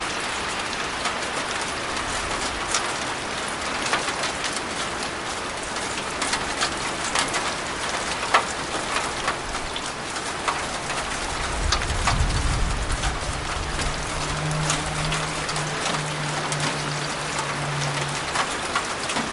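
0.0s Raindrops fall continuously, occasionally striking a metallic surface. 19.3s

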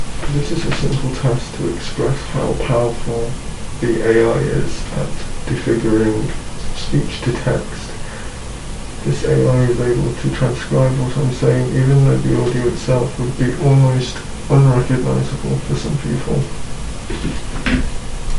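0.0s A man is calmly speaking about AI in a noisy environment. 7.7s
9.0s A tired man is speaking about AI in an ambient setting. 18.4s

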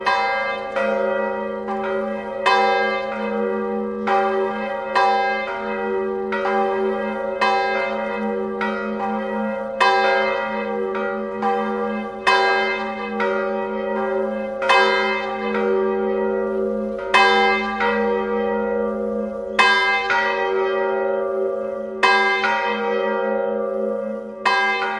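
0.0s Bells of varying intensity ring repeatedly. 25.0s

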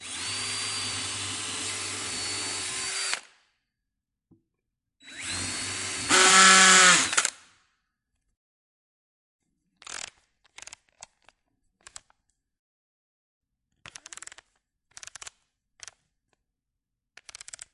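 0.0s A drill driver starts up smoothly. 3.3s
5.1s A drill driver starts up, drills, and then fades away. 7.4s
9.8s A drill driver adjusting the clutch settings. 11.1s
11.9s A drill driver adjusting the clutch settings. 12.0s
13.8s A drill driver adjusting the clutch settings. 15.9s
17.2s A drill driver adjusting the clutch settings. 17.7s

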